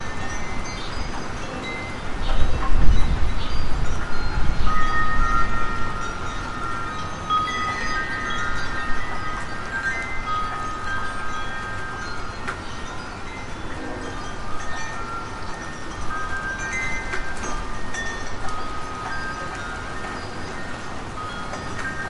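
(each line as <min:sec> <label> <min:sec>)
0:00.0 Rain falls steadily. 0:22.1
0:00.0 Wind chimes producing satisfying rhythmic sounds in the wind. 0:22.1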